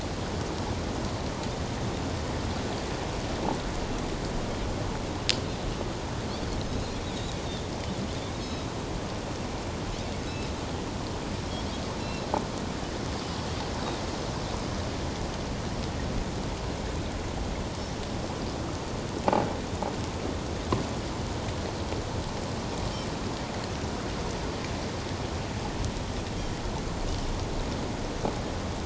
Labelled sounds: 8.4	8.7	Pacific white-sided dolphin, 3.8 to 5.2 kHz
12.0	12.3	Pacific white-sided dolphin, 3.8 to 4.1 kHz

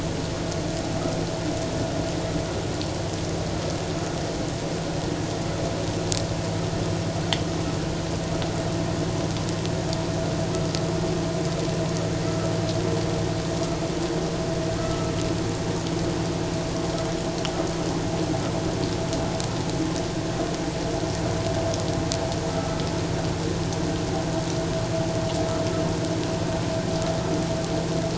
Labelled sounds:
14.8	15.1	vessel noise, 1.2 to 1.4 kHz
22.5	22.8	vessel noise, 1.2 to 1.4 kHz

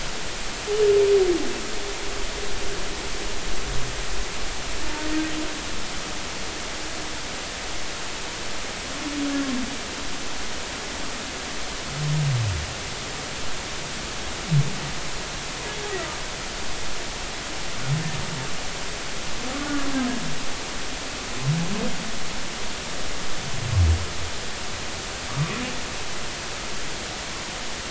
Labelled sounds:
19.6	19.8	humpback whale, 1.4 to 1.5 kHz

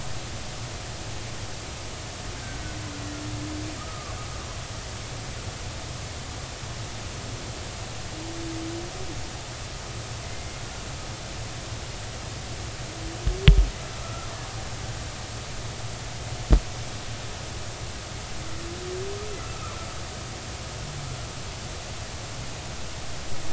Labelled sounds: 2.4	2.6	killer whale, Bigg's (transient), 1.5 to 1.7 kHz
3.8	4.2	killer whale, Bigg's (transient), 1.1 to 1.3 kHz
10.2	10.6	killer whale, Bigg's (transient), 2.0 to 2.2 kHz
14.0	14.3	killer whale, Bigg's (transient), 1.2 to 1.4 kHz
19.4	19.8	killer whale, Bigg's (transient), 0.99 to 1.4 kHz

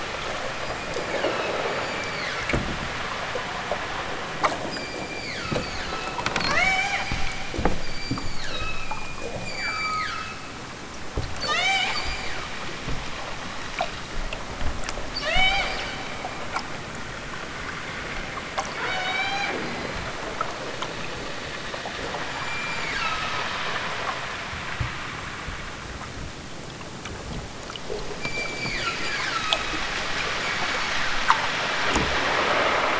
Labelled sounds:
0.5	2.5	killer whale, southern Alaska resident, 1.1 to 8.0 kHz
4.7	7.1	killer whale, southern Alaska resident, 0.46 to 8.0 kHz
7.8	10.6	killer whale, southern Alaska resident, 0.83 to 8.0 kHz
11.3	12.6	killer whale, southern Alaska resident, 0.37 to 8.0 kHz
15.1	15.8	killer whale, southern Alaska resident, 0.37 to 8.0 kHz
18.7	19.6	killer whale, southern Alaska resident, 0.37 to 8.0 kHz
22.2	23.5	killer whale, southern Alaska resident, 0.74 to 8.0 kHz
28.1	29.8	killer whale, southern Alaska resident, 0.87 to 8.0 kHz
30.4	31.2	killer whale, southern Alaska resident, 1.8 to 8.0 kHz

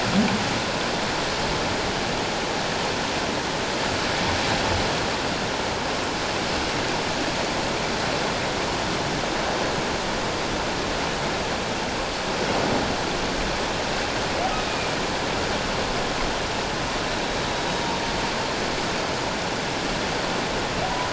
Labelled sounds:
14.7	14.9	humpback whale, 2.3 to 2.5 kHz
17.7	17.9	humpback whale, 3.7 to 3.8 kHz

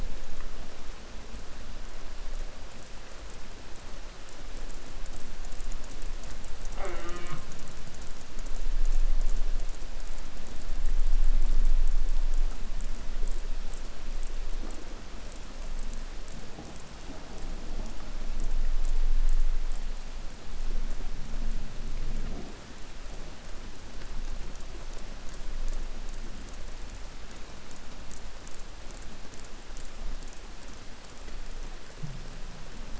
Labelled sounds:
6.7	7.6	killer whale, southern resident, J pod, call S04, 0.19 to 4.7 kHz

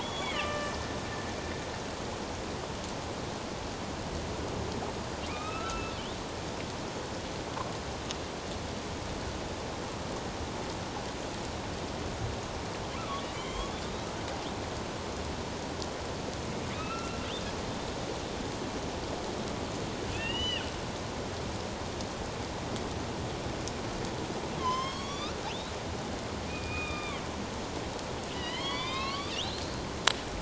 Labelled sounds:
0.0	0.8	killer whale, northern resident, A clan, AB subclan, 1.1 to 3.5 kHz
5.3	5.9	killer whale, northern resident, A clan, AB subclan, 1.2 to 2.7 kHz
13.0	14.1	killer whale, northern resident, A clan, AB subclan, 1.0 to 4.0 kHz
16.7	17.2	killer whale, northern resident, A clan, AB subclan, 1.2 to 2.8 kHz
20.1	20.7	killer whale, northern resident, A clan, AB subclan, 1.7 to 6.1 kHz
24.6	25.3	killer whale, northern resident, A clan, AB subclan, 0.94 to 6.5 kHz
26.5	27.2	killer whale, northern resident, A clan, AB subclan, 1.1 to 3.8 kHz
28.3	29.6	killer whale, northern resident, A clan, AB subclan, 0.91 to 5.1 kHz

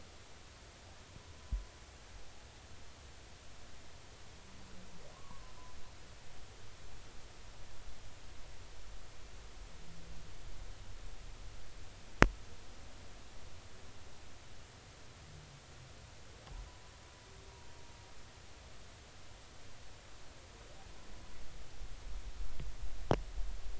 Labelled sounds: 5.1	5.5	humpback whale, 0.90 to 1.2 kHz

